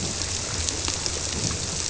{"label": "biophony", "recorder": "SoundTrap 300"}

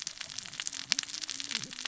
{"label": "biophony, cascading saw", "recorder": "SoundTrap 600 or HydroMoth"}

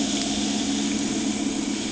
{"label": "anthrophony, boat engine", "recorder": "HydroMoth"}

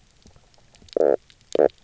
{"label": "biophony, knock croak", "recorder": "SoundTrap 300"}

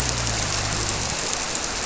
{"label": "biophony", "recorder": "SoundTrap 300"}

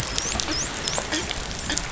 {"label": "biophony, dolphin", "recorder": "SoundTrap 500"}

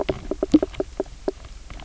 {"label": "biophony, knock croak", "recorder": "SoundTrap 300"}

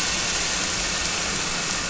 {"label": "anthrophony, boat engine", "recorder": "SoundTrap 300"}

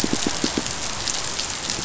{"label": "biophony, pulse", "recorder": "SoundTrap 500"}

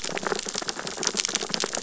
{"label": "biophony, sea urchins (Echinidae)", "recorder": "SoundTrap 600 or HydroMoth"}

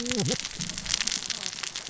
{"label": "biophony, cascading saw", "recorder": "SoundTrap 600 or HydroMoth"}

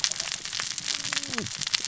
{"label": "biophony, cascading saw", "recorder": "SoundTrap 600 or HydroMoth"}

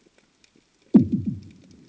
{"label": "anthrophony, bomb", "recorder": "HydroMoth"}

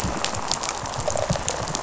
{"label": "biophony, rattle response", "recorder": "SoundTrap 500"}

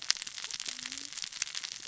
{"label": "biophony, cascading saw", "recorder": "SoundTrap 600 or HydroMoth"}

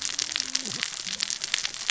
{"label": "biophony, cascading saw", "recorder": "SoundTrap 600 or HydroMoth"}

